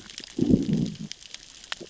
{"label": "biophony, growl", "recorder": "SoundTrap 600 or HydroMoth"}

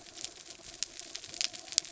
{"label": "anthrophony, mechanical", "recorder": "SoundTrap 300"}
{"label": "biophony", "recorder": "SoundTrap 300"}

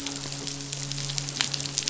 {"label": "biophony, midshipman", "recorder": "SoundTrap 500"}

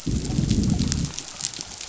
{"label": "biophony, growl", "recorder": "SoundTrap 500"}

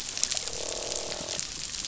{"label": "biophony, croak", "recorder": "SoundTrap 500"}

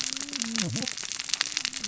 {"label": "biophony, cascading saw", "recorder": "SoundTrap 600 or HydroMoth"}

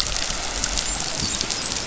{"label": "biophony, dolphin", "recorder": "SoundTrap 500"}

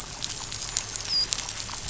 {"label": "biophony, dolphin", "recorder": "SoundTrap 500"}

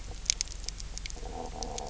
{"label": "biophony", "recorder": "SoundTrap 300"}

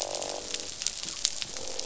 {"label": "biophony, croak", "recorder": "SoundTrap 500"}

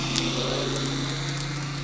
{"label": "anthrophony, boat engine", "recorder": "SoundTrap 300"}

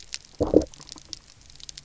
{"label": "biophony, low growl", "recorder": "SoundTrap 300"}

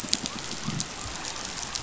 {"label": "biophony", "recorder": "SoundTrap 500"}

